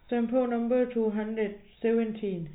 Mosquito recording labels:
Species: no mosquito; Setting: cup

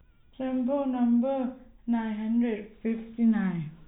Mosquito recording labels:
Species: no mosquito; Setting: cup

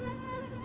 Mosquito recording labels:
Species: Anopheles stephensi; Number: one; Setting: insect culture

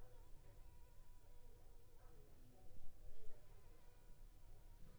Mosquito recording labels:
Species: Anopheles funestus s.l.; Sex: female; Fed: unfed; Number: one; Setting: cup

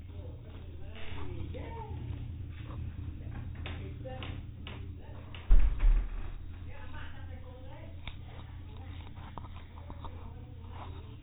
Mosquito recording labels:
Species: no mosquito; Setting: cup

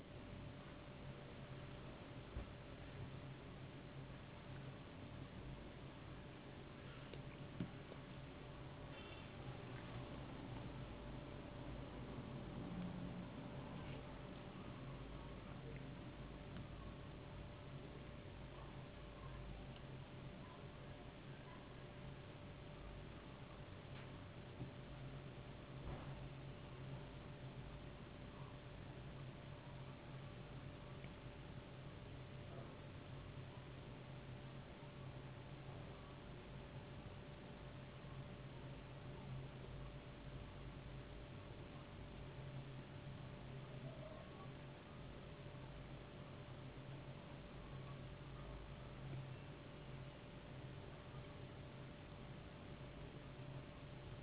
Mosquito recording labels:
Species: no mosquito; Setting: insect culture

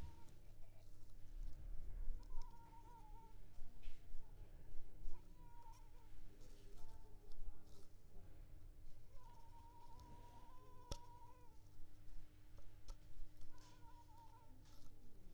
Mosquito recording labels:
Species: Culex pipiens complex; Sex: female; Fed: unfed; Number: one; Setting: cup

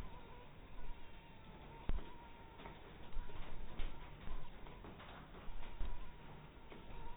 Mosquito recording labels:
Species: mosquito; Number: one; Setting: cup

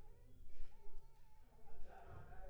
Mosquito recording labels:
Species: Anopheles funestus s.s.; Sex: female; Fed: blood-fed; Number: one; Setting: cup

